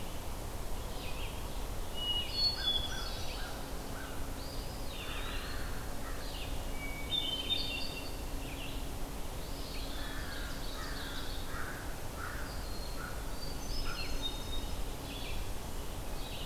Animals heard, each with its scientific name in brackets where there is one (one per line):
Hermit Thrush (Catharus guttatus)
Ovenbird (Seiurus aurocapilla)
American Crow (Corvus brachyrhynchos)
Red-eyed Vireo (Vireo olivaceus)
Eastern Wood-Pewee (Contopus virens)